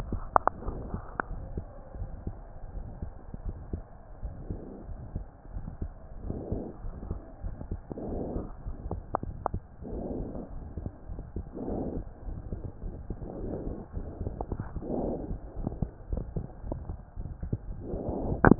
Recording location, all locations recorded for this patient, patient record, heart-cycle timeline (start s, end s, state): aortic valve (AV)
aortic valve (AV)+pulmonary valve (PV)+tricuspid valve (TV)+mitral valve (MV)
#Age: Child
#Sex: Female
#Height: 101.0 cm
#Weight: 18.7 kg
#Pregnancy status: False
#Murmur: Present
#Murmur locations: aortic valve (AV)+mitral valve (MV)+pulmonary valve (PV)+tricuspid valve (TV)
#Most audible location: pulmonary valve (PV)
#Systolic murmur timing: Early-systolic
#Systolic murmur shape: Plateau
#Systolic murmur grading: II/VI
#Systolic murmur pitch: Low
#Systolic murmur quality: Blowing
#Diastolic murmur timing: nan
#Diastolic murmur shape: nan
#Diastolic murmur grading: nan
#Diastolic murmur pitch: nan
#Diastolic murmur quality: nan
#Outcome: Abnormal
#Campaign: 2015 screening campaign
0.00	1.30	unannotated
1.30	1.43	S1
1.43	1.53	systole
1.53	1.65	S2
1.65	1.94	diastole
1.94	2.10	S1
2.10	2.23	systole
2.23	2.36	S2
2.36	2.70	diastole
2.70	2.84	S1
2.84	2.98	systole
2.98	3.12	S2
3.12	3.40	diastole
3.40	3.58	S1
3.58	3.70	systole
3.70	3.84	S2
3.84	4.22	diastole
4.22	4.36	S1
4.36	4.48	systole
4.48	4.62	S2
4.62	4.88	diastole
4.88	4.98	S1
4.98	5.12	systole
5.12	5.26	S2
5.26	5.52	diastole
5.52	5.64	S1
5.64	5.78	systole
5.78	5.92	S2
5.92	6.20	diastole
6.20	6.38	S1
6.38	6.49	systole
6.49	6.63	S2
6.63	6.82	diastole
6.82	6.96	S1
6.96	7.06	systole
7.06	7.20	S2
7.20	7.44	diastole
7.44	7.56	S1
7.56	7.68	systole
7.68	7.80	S2
7.80	8.02	diastole
8.02	8.20	S1
8.20	8.32	systole
8.32	8.46	S2
8.46	8.64	diastole
8.64	8.76	S1
8.76	8.86	systole
8.86	9.02	S2
9.02	9.24	diastole
9.24	9.36	S1
9.36	9.50	systole
9.50	9.62	S2
9.62	9.86	diastole
9.86	10.04	S1
10.04	10.15	systole
10.15	10.31	S2
10.31	10.53	diastole
10.53	10.66	S1
10.66	10.78	systole
10.78	10.92	S2
10.92	11.10	diastole
11.10	11.24	S1
11.24	11.34	systole
11.34	11.46	S2
11.46	11.68	diastole
11.68	11.82	S1
11.82	11.92	systole
11.92	12.06	S2
12.06	12.26	diastole
12.26	12.40	S1
12.40	12.48	systole
12.48	12.62	S2
12.62	12.81	diastole
12.81	12.94	S1
12.94	13.08	systole
13.08	13.18	S2
13.18	13.38	diastole
13.38	13.54	S1
13.54	13.64	systole
13.64	13.76	S2
13.76	13.93	diastole
13.93	14.08	S1
14.08	14.19	systole
14.19	14.33	S2
14.33	14.51	diastole
14.51	18.59	unannotated